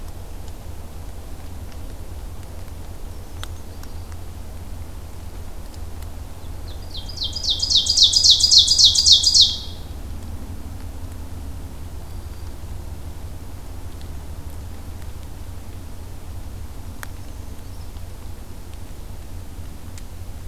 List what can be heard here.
Brown Creeper, Ovenbird, Black-throated Green Warbler